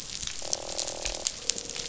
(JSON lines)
{"label": "biophony, croak", "recorder": "SoundTrap 500"}